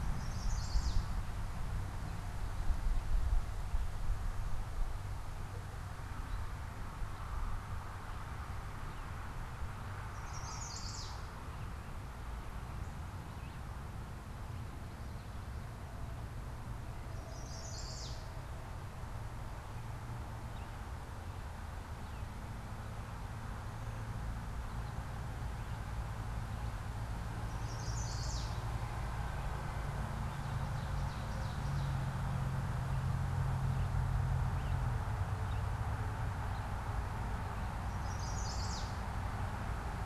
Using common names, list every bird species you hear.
Chestnut-sided Warbler, Ovenbird, Red-eyed Vireo